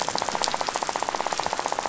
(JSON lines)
{"label": "biophony, rattle", "recorder": "SoundTrap 500"}